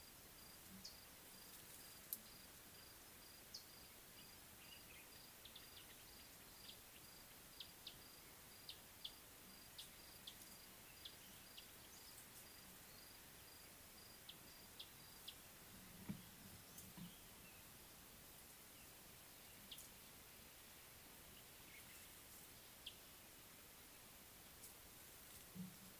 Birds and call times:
Scarlet-chested Sunbird (Chalcomitra senegalensis): 9.0s

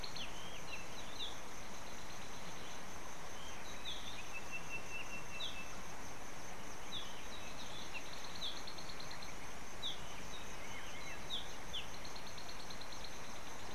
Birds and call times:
African Bare-eyed Thrush (Turdus tephronotus): 2.4s, 8.1s, 12.5s
Sulphur-breasted Bushshrike (Telophorus sulfureopectus): 4.8s

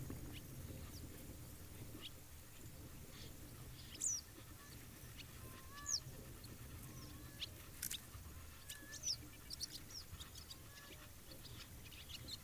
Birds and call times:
Western Yellow Wagtail (Motacilla flava): 4.0s

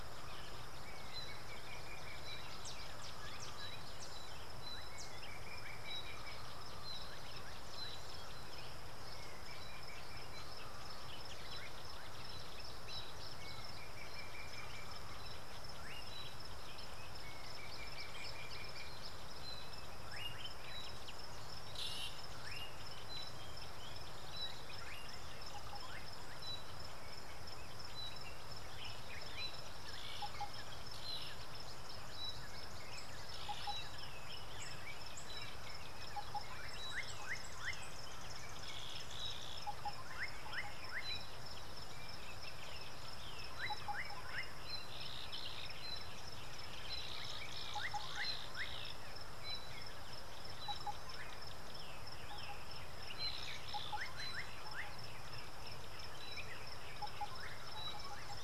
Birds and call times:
Slate-colored Boubou (Laniarius funebris): 20.3s, 22.0s, 40.6s, 57.3s
Yellow-breasted Apalis (Apalis flavida): 45.2s

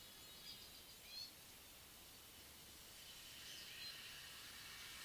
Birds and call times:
Gray-backed Camaroptera (Camaroptera brevicaudata): 1.1s

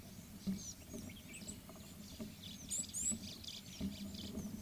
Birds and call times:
Red-cheeked Cordonbleu (Uraeginthus bengalus): 2.9s
White-browed Sparrow-Weaver (Plocepasser mahali): 3.5s

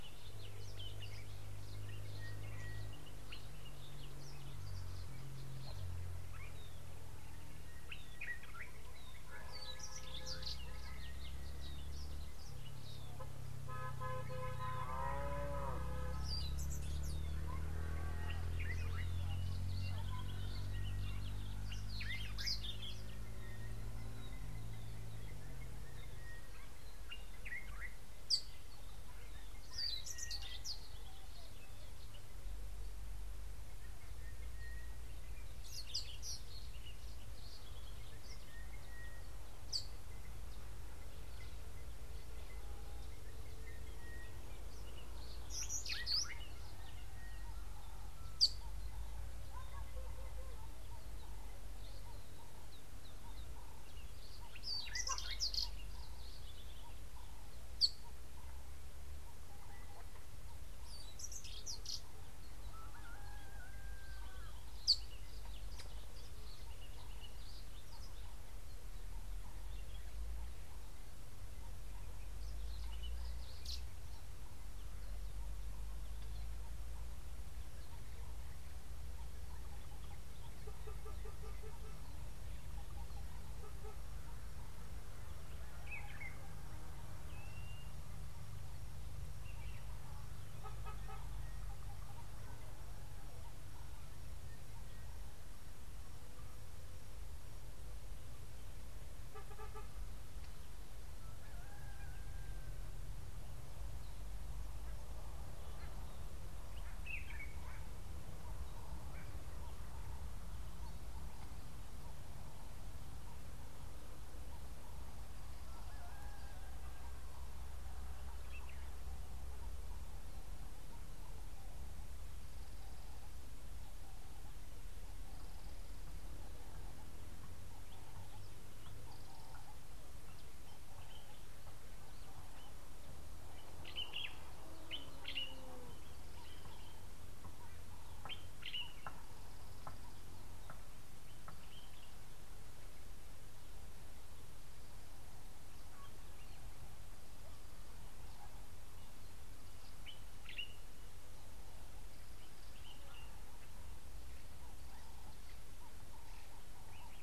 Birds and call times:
Sulphur-breasted Bushshrike (Telophorus sulfureopectus): 2.5s, 34.6s, 44.0s
Pale White-eye (Zosterops flavilateralis): 6.5s
Common Bulbul (Pycnonotus barbatus): 8.1s, 27.3s, 85.8s, 107.0s, 134.8s, 138.6s, 150.4s
Brimstone Canary (Crithagra sulphurata): 22.2s, 30.0s, 45.8s, 55.2s
Red-headed Weaver (Anaplectes rubriceps): 28.2s, 39.6s, 48.3s, 57.7s, 64.8s
Blue-naped Mousebird (Urocolius macrourus): 87.5s
Ring-necked Dove (Streptopelia capicola): 156.0s

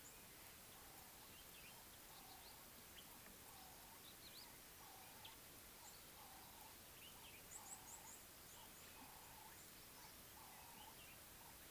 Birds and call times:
Ring-necked Dove (Streptopelia capicola): 6.5s
Red-cheeked Cordonbleu (Uraeginthus bengalus): 7.8s

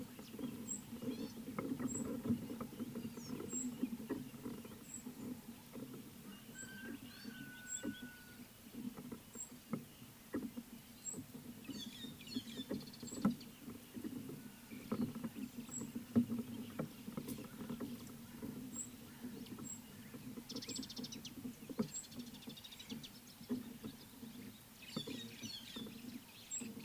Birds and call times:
Gray-backed Camaroptera (Camaroptera brevicaudata): 1.2s
White-headed Buffalo-Weaver (Dinemellia dinemelli): 12.1s, 25.2s
Mariqua Sunbird (Cinnyris mariquensis): 20.8s

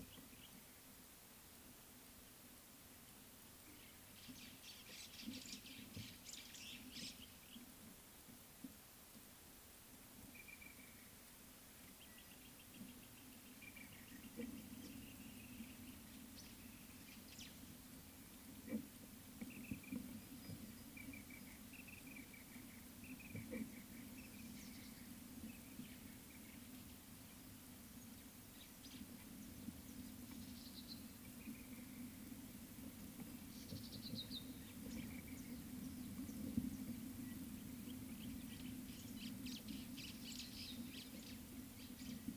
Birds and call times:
White-browed Sparrow-Weaver (Plocepasser mahali): 6.1s, 40.1s
Black-throated Barbet (Tricholaema melanocephala): 10.7s, 19.8s, 23.3s
Red-backed Scrub-Robin (Cercotrichas leucophrys): 34.1s

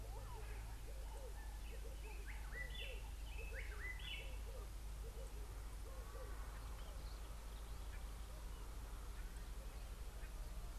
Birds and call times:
White-browed Robin-Chat (Cossypha heuglini): 3.7s
Red-eyed Dove (Streptopelia semitorquata): 5.2s

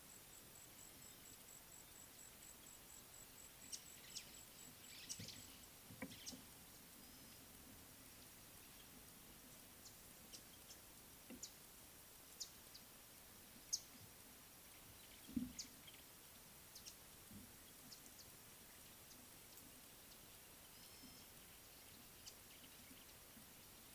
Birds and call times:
Lesser Masked-Weaver (Ploceus intermedius): 4.2s

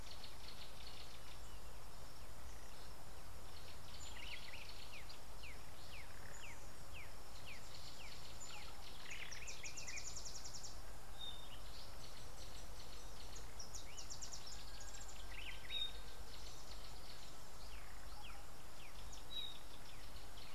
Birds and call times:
Black-backed Puffback (Dryoscopus cubla): 6.9s
Variable Sunbird (Cinnyris venustus): 10.3s

